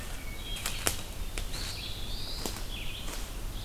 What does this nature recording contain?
Red-eyed Vireo, Hermit Thrush, Black-throated Blue Warbler, Eastern Wood-Pewee